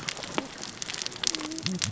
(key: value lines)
label: biophony, cascading saw
recorder: SoundTrap 600 or HydroMoth